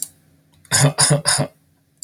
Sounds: Cough